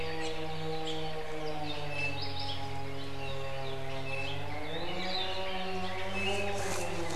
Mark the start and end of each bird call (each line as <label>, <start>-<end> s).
Hawaii Creeper (Loxops mana), 0.2-0.4 s
Iiwi (Drepanis coccinea), 1.9-2.3 s
Apapane (Himatione sanguinea), 2.2-2.6 s
Iiwi (Drepanis coccinea), 4.0-4.5 s
Red-billed Leiothrix (Leiothrix lutea), 4.5-7.2 s
Hawaii Akepa (Loxops coccineus), 5.0-5.5 s
Iiwi (Drepanis coccinea), 6.1-6.6 s